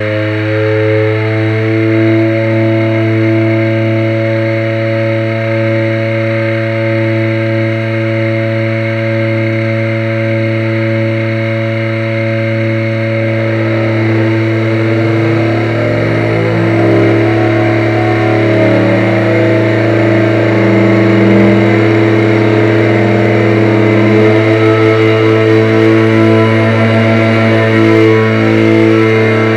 Is it eventually switched off?
no